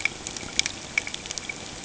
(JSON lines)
{"label": "ambient", "recorder": "HydroMoth"}